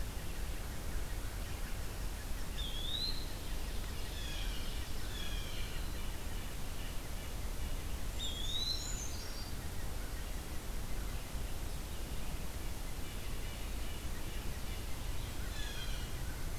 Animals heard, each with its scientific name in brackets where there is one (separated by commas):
Red-breasted Nuthatch (Sitta canadensis), Eastern Wood-Pewee (Contopus virens), Brown Creeper (Certhia americana), Blue Jay (Cyanocitta cristata)